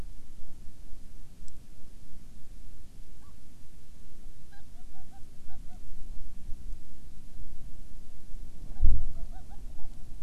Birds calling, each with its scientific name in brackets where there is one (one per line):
Hawaiian Petrel (Pterodroma sandwichensis)